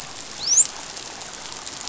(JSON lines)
{"label": "biophony, dolphin", "recorder": "SoundTrap 500"}